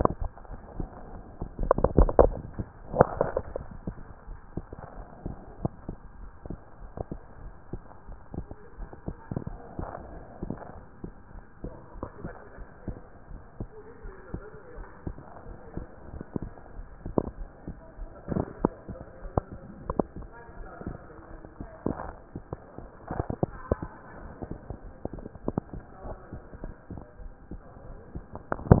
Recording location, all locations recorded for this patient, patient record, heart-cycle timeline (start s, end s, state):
pulmonary valve (PV)
aortic valve (AV)+pulmonary valve (PV)+tricuspid valve (TV)+mitral valve (MV)
#Age: Child
#Sex: Male
#Height: 127.0 cm
#Weight: 35.8 kg
#Pregnancy status: False
#Murmur: Absent
#Murmur locations: nan
#Most audible location: nan
#Systolic murmur timing: nan
#Systolic murmur shape: nan
#Systolic murmur grading: nan
#Systolic murmur pitch: nan
#Systolic murmur quality: nan
#Diastolic murmur timing: nan
#Diastolic murmur shape: nan
#Diastolic murmur grading: nan
#Diastolic murmur pitch: nan
#Diastolic murmur quality: nan
#Outcome: Normal
#Campaign: 2014 screening campaign
0.00	6.09	unannotated
6.09	6.20	diastole
6.20	6.30	S1
6.30	6.48	systole
6.48	6.58	S2
6.58	6.82	diastole
6.82	6.92	S1
6.92	7.12	systole
7.12	7.20	S2
7.20	7.42	diastole
7.42	7.52	S1
7.52	7.72	systole
7.72	7.82	S2
7.82	8.08	diastole
8.08	8.20	S1
8.20	8.36	systole
8.36	8.46	S2
8.46	8.78	diastole
8.78	8.88	S1
8.88	9.06	systole
9.06	9.16	S2
9.16	9.48	diastole
9.48	9.58	S1
9.58	9.78	systole
9.78	9.88	S2
9.88	10.44	diastole
10.44	10.56	S1
10.56	10.74	systole
10.74	10.82	S2
10.82	11.02	diastole
11.02	11.14	S1
11.14	11.32	systole
11.32	11.42	S2
11.42	11.64	diastole
11.64	11.74	S1
11.74	11.94	systole
11.94	12.06	S2
12.06	12.24	diastole
12.24	12.34	S1
12.34	12.54	systole
12.54	12.66	S2
12.66	12.86	diastole
12.86	28.80	unannotated